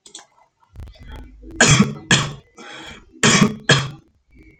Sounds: Cough